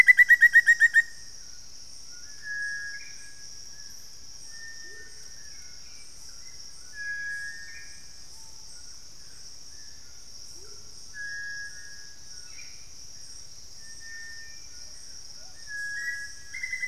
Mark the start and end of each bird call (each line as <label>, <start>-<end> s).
Black-faced Antthrush (Formicarius analis), 0.0-16.9 s
Cinereous Tinamou (Crypturellus cinereus), 0.0-16.9 s
Hauxwell's Thrush (Turdus hauxwelli), 0.0-16.9 s
White-throated Toucan (Ramphastos tucanus), 0.0-16.9 s
Amazonian Motmot (Momotus momota), 4.8-5.2 s
Screaming Piha (Lipaugus vociferans), 8.2-8.7 s
Amazonian Motmot (Momotus momota), 10.4-10.9 s
Plumbeous Pigeon (Patagioenas plumbea), 14.6-16.9 s